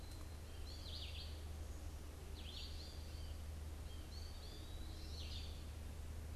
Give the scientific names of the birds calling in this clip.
Spinus tristis, Contopus virens, Vireo olivaceus